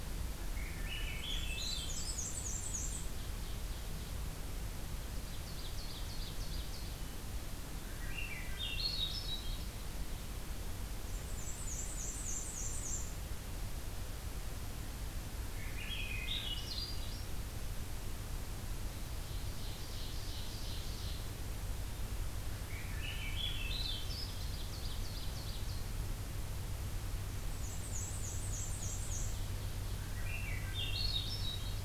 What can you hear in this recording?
Swainson's Thrush, Black-and-white Warbler, Ovenbird